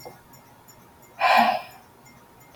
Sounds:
Sigh